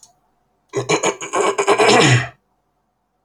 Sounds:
Throat clearing